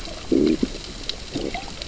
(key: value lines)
label: biophony, growl
recorder: SoundTrap 600 or HydroMoth